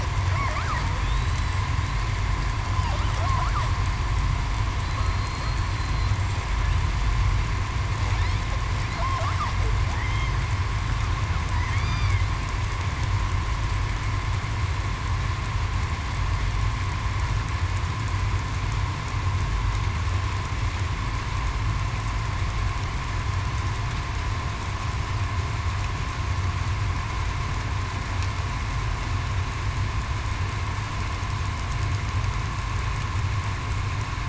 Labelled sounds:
1.0	1.5	killer whale, southern resident, 3.3 to 4.0 kHz
5.0	6.1	killer whale, southern resident, 4.1 to 4.3 kHz
11.8	12.2	killer whale, southern resident, 2.0 to 2.5 kHz

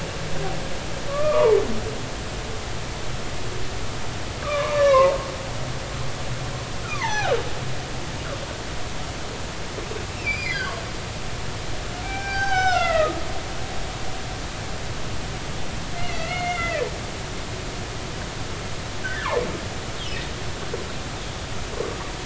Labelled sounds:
1.1	1.6	humpback whale, 0.83 to 1.3 kHz
4.4	5.2	humpback whale, 0.86 to 2.9 kHz
6.8	7.4	humpback whale, 0.80 to 6.1 kHz
10.1	10.7	humpback whale, 1.9 to 5.0 kHz
12.0	13.2	humpback whale, 0.80 to 6.1 kHz
16.0	16.9	humpback whale, 1.3 to 3.6 kHz
19.0	19.4	humpback whale, 0.83 to 2.0 kHz

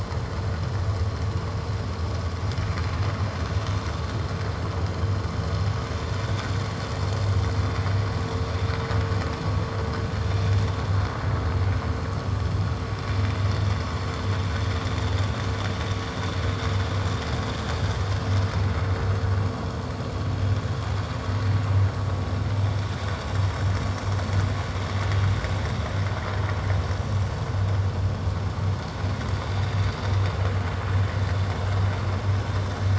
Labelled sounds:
10.2	10.5	vessel noise, 5.6 to 5.8 kHz

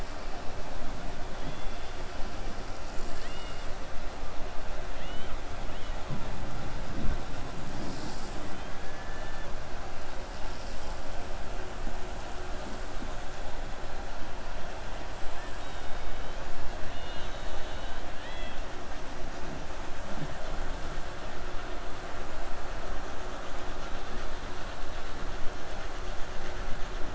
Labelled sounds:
16.8	18.6	killer whale, 1.7 to 4.3 kHz

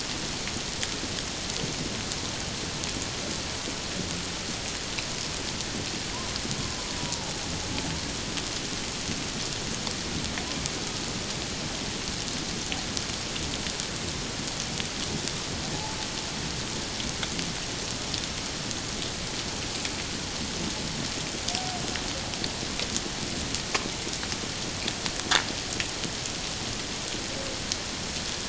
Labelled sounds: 7.0	7.3	humpback whale, 0.84 to 1.0 kHz

